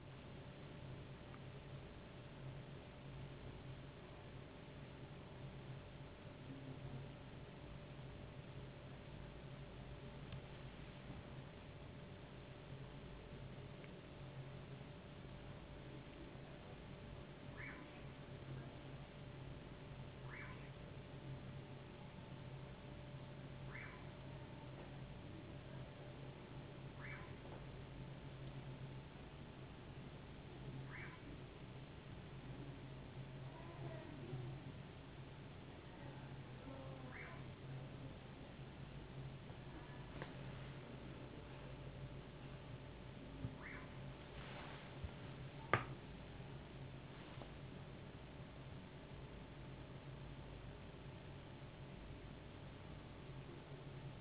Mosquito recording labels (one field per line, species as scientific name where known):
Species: no mosquito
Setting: insect culture